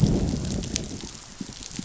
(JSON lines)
{"label": "biophony, growl", "recorder": "SoundTrap 500"}